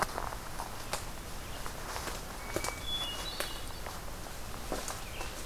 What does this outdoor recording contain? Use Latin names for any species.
Catharus guttatus